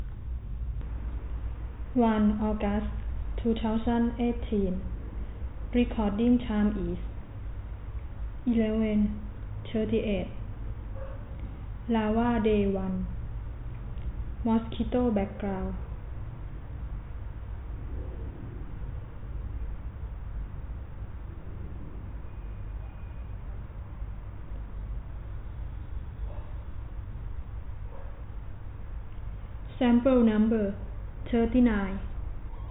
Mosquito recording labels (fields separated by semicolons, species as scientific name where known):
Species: no mosquito; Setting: cup